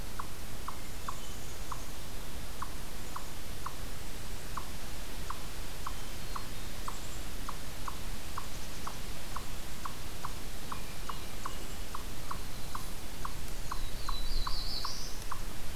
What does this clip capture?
Eastern Chipmunk, Hermit Thrush, Black-capped Chickadee, Black-throated Blue Warbler